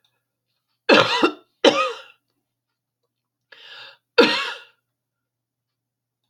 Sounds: Cough